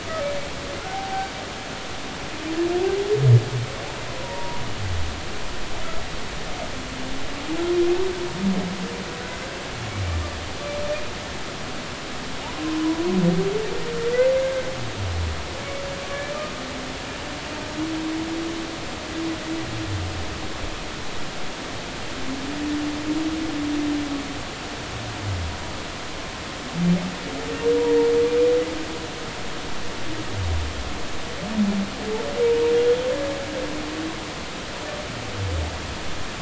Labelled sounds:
0.1	1.3	humpback whale, 0.80 to 1.3 kHz
4.1	4.6	humpback whale, 0.90 to 1.1 kHz
12.6	13.0	humpback whale, 0.93 to 1.1 kHz
16.1	16.4	humpback whale, 2.2 to 2.4 kHz

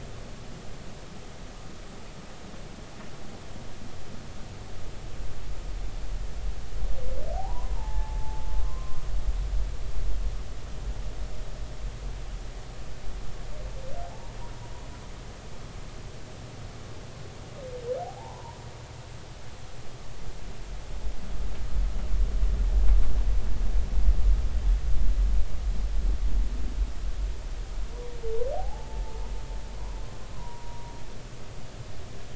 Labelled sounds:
7.3	9.0	humpback whale, 0.80 to 1.1 kHz
14.1	14.4	humpback whale, 0.80 to 1.0 kHz
18.2	18.6	humpback whale, 0.80 to 1.1 kHz
28.6	29.0	humpback whale, 0.80 to 0.93 kHz
30.3	30.9	humpback whale, 0.90 to 1.1 kHz

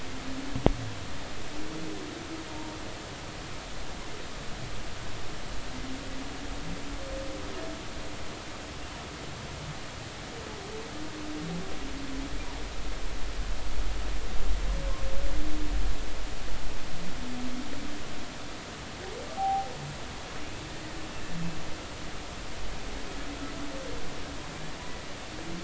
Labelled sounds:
2.5	2.8	humpback whale, 0.86 to 1.0 kHz
19.4	19.7	humpback whale, 0.80 to 0.86 kHz

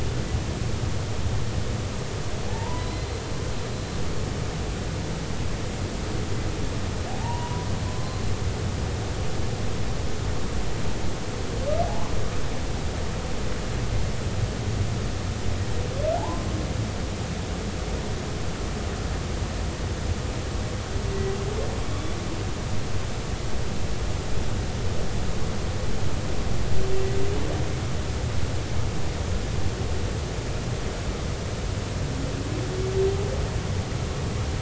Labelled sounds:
2.5	3.2	humpback whale, 0.80 to 4.1 kHz
7.2	8.2	humpback whale, 0.80 to 3.0 kHz
11.8	12.2	humpback whale, 0.80 to 1.2 kHz
16.2	16.5	humpback whale, 0.80 to 1.1 kHz

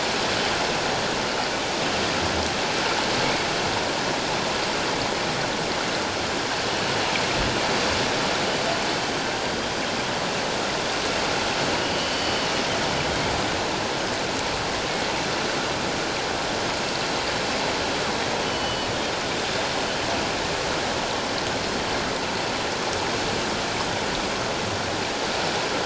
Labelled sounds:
11.8	12.3	killer whale, northern resident, G clan, 2.8 to 4.7 kHz
18.4	18.9	killer whale, northern resident, G clan, 2.8 to 3.1 kHz

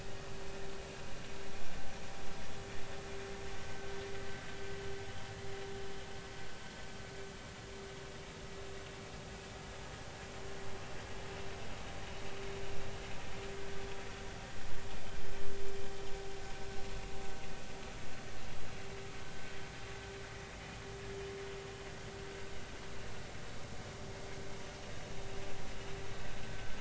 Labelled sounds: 26.4	26.7	vessel noise, 1.5 to 1.6 kHz

